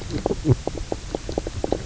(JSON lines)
{"label": "biophony, knock croak", "recorder": "SoundTrap 300"}